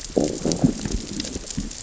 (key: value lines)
label: biophony, growl
recorder: SoundTrap 600 or HydroMoth